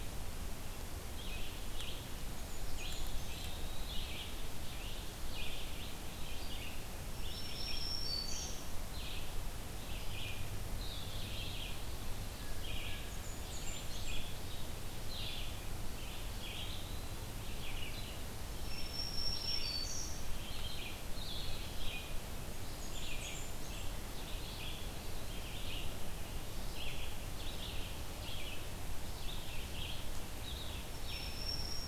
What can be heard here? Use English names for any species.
Red-eyed Vireo, Blackburnian Warbler, Eastern Wood-Pewee, Black-throated Green Warbler, Blue Jay